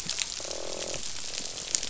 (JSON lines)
{"label": "biophony, croak", "recorder": "SoundTrap 500"}